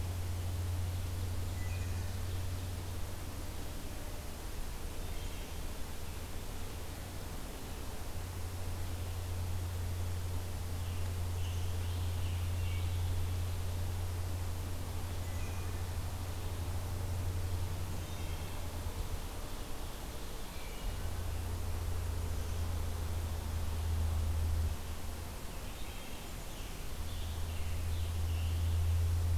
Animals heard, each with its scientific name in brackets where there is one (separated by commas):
Scarlet Tanager (Piranga olivacea), Wood Thrush (Hylocichla mustelina)